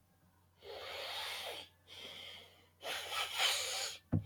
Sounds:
Sniff